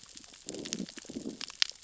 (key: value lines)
label: biophony, growl
recorder: SoundTrap 600 or HydroMoth